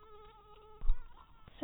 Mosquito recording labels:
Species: mosquito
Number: one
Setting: cup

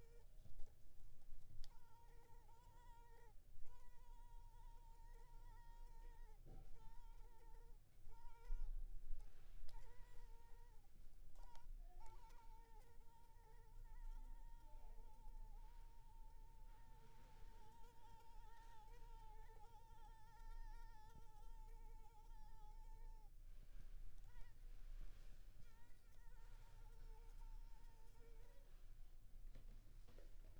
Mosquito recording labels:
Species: Culex pipiens complex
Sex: female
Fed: unfed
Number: one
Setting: cup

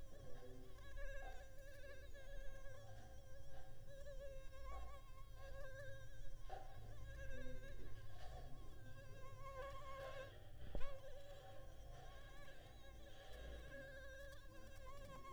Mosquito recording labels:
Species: Anopheles arabiensis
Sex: female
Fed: unfed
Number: one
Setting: cup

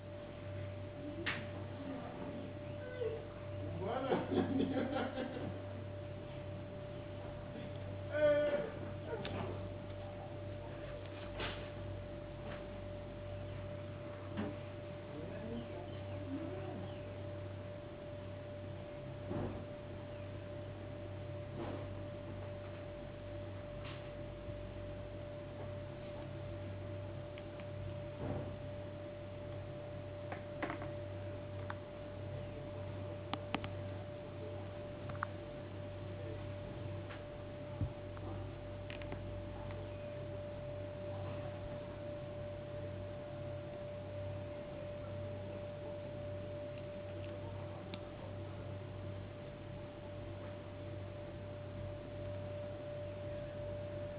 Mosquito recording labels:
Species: no mosquito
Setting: insect culture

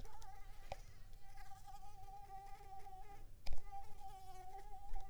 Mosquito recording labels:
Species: Mansonia uniformis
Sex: female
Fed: unfed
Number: one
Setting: cup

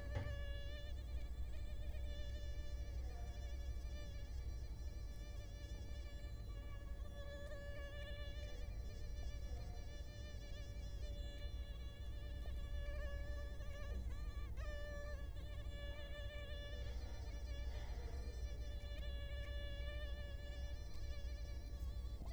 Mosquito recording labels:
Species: Culex quinquefasciatus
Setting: cup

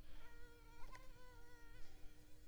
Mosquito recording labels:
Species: Culex pipiens complex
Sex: female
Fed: unfed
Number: one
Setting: cup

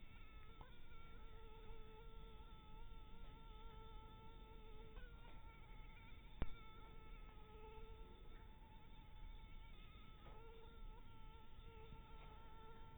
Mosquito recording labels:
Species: mosquito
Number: one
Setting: cup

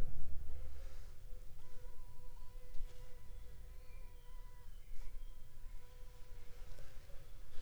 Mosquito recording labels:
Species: Anopheles funestus s.l.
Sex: female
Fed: unfed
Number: one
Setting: cup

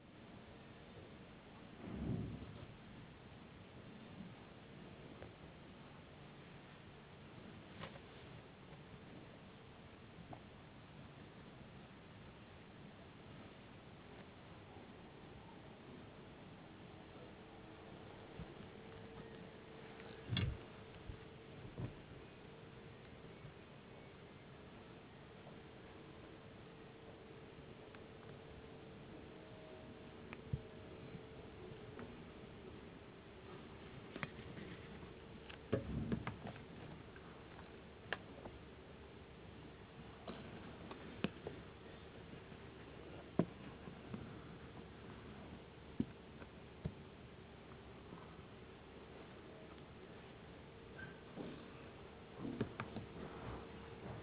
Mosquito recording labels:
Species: no mosquito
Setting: insect culture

